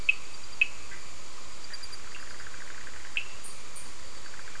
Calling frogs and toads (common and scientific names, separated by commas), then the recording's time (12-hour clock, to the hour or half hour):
Cochran's lime tree frog (Sphaenorhynchus surdus), Bischoff's tree frog (Boana bischoffi)
10pm